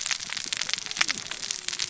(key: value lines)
label: biophony, cascading saw
recorder: SoundTrap 600 or HydroMoth